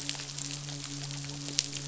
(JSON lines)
{"label": "biophony, midshipman", "recorder": "SoundTrap 500"}